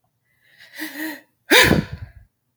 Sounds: Sneeze